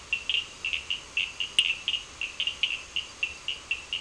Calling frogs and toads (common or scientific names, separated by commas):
Cochran's lime tree frog